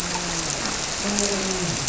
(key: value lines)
label: biophony, grouper
recorder: SoundTrap 300